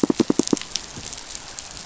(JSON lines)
{"label": "biophony, pulse", "recorder": "SoundTrap 500"}